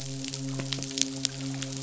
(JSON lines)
{"label": "biophony, midshipman", "recorder": "SoundTrap 500"}